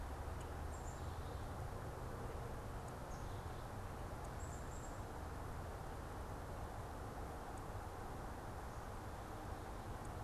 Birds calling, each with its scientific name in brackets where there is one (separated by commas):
Black-capped Chickadee (Poecile atricapillus)